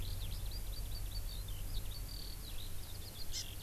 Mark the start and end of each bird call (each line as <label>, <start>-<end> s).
Eurasian Skylark (Alauda arvensis), 0.0-3.6 s
Hawaii Amakihi (Chlorodrepanis virens), 3.3-3.5 s